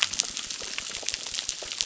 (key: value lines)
label: biophony
recorder: SoundTrap 600